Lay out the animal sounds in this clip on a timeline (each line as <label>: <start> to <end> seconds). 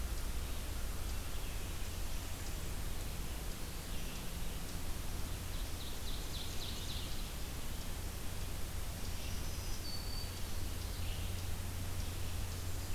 Eastern Chipmunk (Tamias striatus): 0.0 to 12.9 seconds
Red-eyed Vireo (Vireo olivaceus): 0.0 to 12.9 seconds
Ovenbird (Seiurus aurocapilla): 5.1 to 7.8 seconds
Black-throated Green Warbler (Setophaga virens): 8.9 to 10.7 seconds